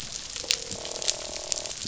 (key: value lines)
label: biophony, croak
recorder: SoundTrap 500